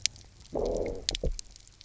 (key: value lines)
label: biophony, low growl
recorder: SoundTrap 300